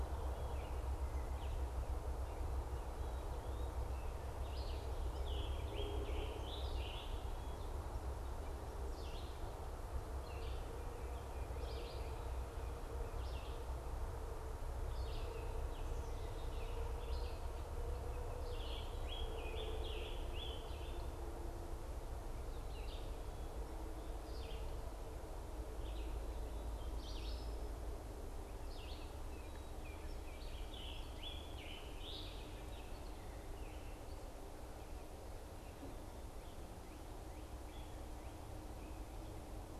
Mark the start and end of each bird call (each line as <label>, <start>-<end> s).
Red-eyed Vireo (Vireo olivaceus), 4.4-33.0 s
Scarlet Tanager (Piranga olivacea), 5.0-7.3 s
Scarlet Tanager (Piranga olivacea), 18.4-21.1 s
Baltimore Oriole (Icterus galbula), 29.3-30.7 s
Scarlet Tanager (Piranga olivacea), 30.4-32.6 s